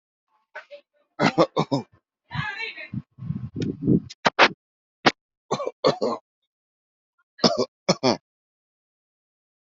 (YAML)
expert_labels:
- quality: ok
  cough_type: dry
  dyspnea: false
  wheezing: false
  stridor: false
  choking: false
  congestion: false
  nothing: true
  diagnosis: upper respiratory tract infection
  severity: unknown
age: 23
gender: male
respiratory_condition: false
fever_muscle_pain: true
status: COVID-19